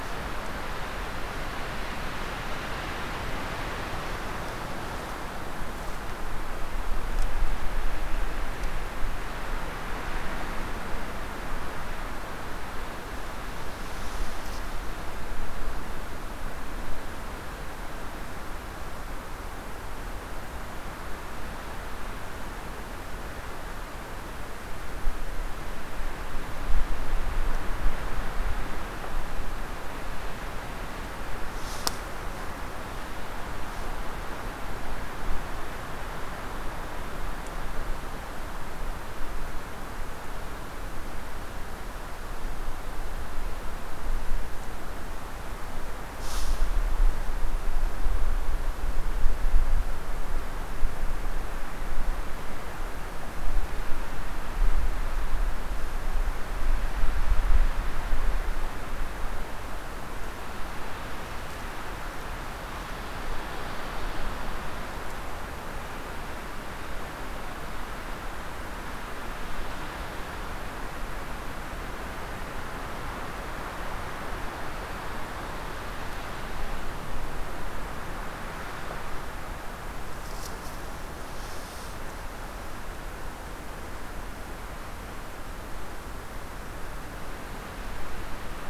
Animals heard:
forest ambience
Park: Hubbard Brook Experimental Forest